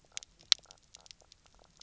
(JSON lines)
{"label": "biophony, knock croak", "recorder": "SoundTrap 300"}